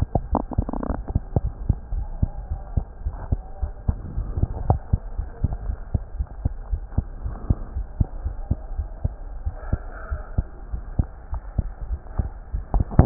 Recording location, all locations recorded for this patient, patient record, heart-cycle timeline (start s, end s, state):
pulmonary valve (PV)
aortic valve (AV)+pulmonary valve (PV)+tricuspid valve (TV)+mitral valve (MV)
#Age: Child
#Sex: Female
#Height: 98.0 cm
#Weight: 15.9 kg
#Pregnancy status: False
#Murmur: Absent
#Murmur locations: nan
#Most audible location: nan
#Systolic murmur timing: nan
#Systolic murmur shape: nan
#Systolic murmur grading: nan
#Systolic murmur pitch: nan
#Systolic murmur quality: nan
#Diastolic murmur timing: nan
#Diastolic murmur shape: nan
#Diastolic murmur grading: nan
#Diastolic murmur pitch: nan
#Diastolic murmur quality: nan
#Outcome: Abnormal
#Campaign: 2015 screening campaign
0.00	2.48	unannotated
2.48	2.62	S1
2.62	2.74	systole
2.74	2.86	S2
2.86	3.04	diastole
3.04	3.18	S1
3.18	3.30	systole
3.30	3.42	S2
3.42	3.62	diastole
3.62	3.72	S1
3.72	3.84	systole
3.84	3.98	S2
3.98	4.14	diastole
4.14	4.28	S1
4.28	4.36	systole
4.36	4.52	S2
4.52	4.68	diastole
4.68	4.80	S1
4.80	4.88	systole
4.88	5.02	S2
5.02	5.16	diastole
5.16	5.28	S1
5.28	5.40	systole
5.40	5.52	S2
5.52	5.66	diastole
5.66	5.78	S1
5.78	5.90	systole
5.90	6.02	S2
6.02	6.16	diastole
6.16	6.26	S1
6.26	6.40	systole
6.40	6.52	S2
6.52	6.70	diastole
6.70	6.84	S1
6.84	6.96	systole
6.96	7.08	S2
7.08	7.24	diastole
7.24	7.36	S1
7.36	7.46	systole
7.46	7.60	S2
7.60	7.76	diastole
7.76	7.86	S1
7.86	7.96	systole
7.96	8.10	S2
8.10	8.24	diastole
8.24	8.36	S1
8.36	8.48	systole
8.48	8.58	S2
8.58	8.76	diastole
8.76	8.90	S1
8.90	9.01	systole
9.01	9.14	S2
9.14	13.06	unannotated